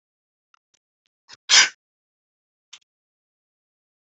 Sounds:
Sneeze